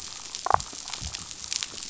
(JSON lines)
{"label": "biophony, damselfish", "recorder": "SoundTrap 500"}